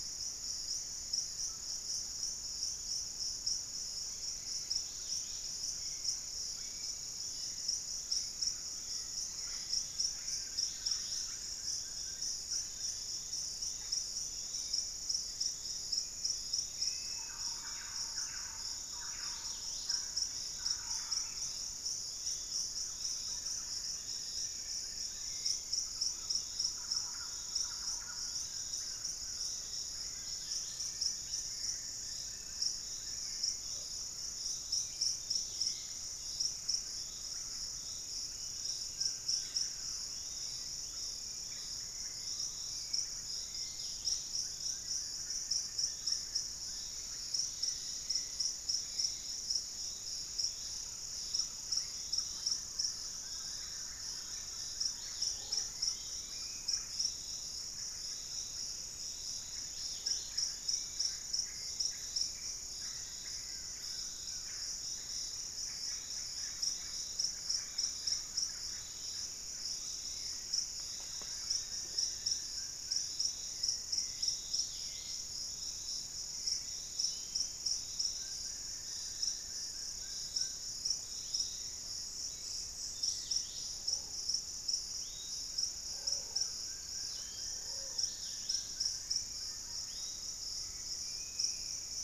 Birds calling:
Undulated Tinamou (Crypturellus undulatus)
unidentified bird
Bluish-fronted Jacamar (Galbula cyanescens)
Thrush-like Wren (Campylorhynchus turdinus)
Russet-backed Oropendola (Psarocolius angustifrons)
Dusky-capped Greenlet (Pachysylvia hypoxantha)
Hauxwell's Thrush (Turdus hauxwelli)
Dusky-capped Flycatcher (Myiarchus tuberculifer)
Collared Trogon (Trogon collaris)
Yellow-margined Flycatcher (Tolmomyias assimilis)
Plumbeous Pigeon (Patagioenas plumbea)
Wing-barred Piprites (Piprites chloris)

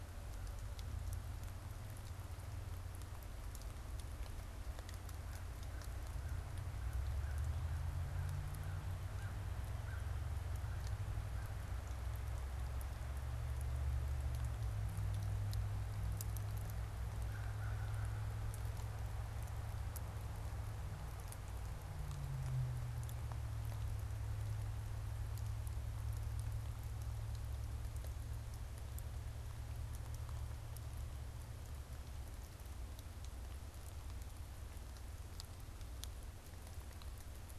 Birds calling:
American Crow (Corvus brachyrhynchos)

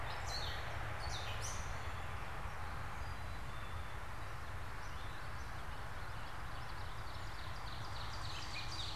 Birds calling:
Ovenbird (Seiurus aurocapilla)
Gray Catbird (Dumetella carolinensis)
Black-capped Chickadee (Poecile atricapillus)
Common Yellowthroat (Geothlypis trichas)

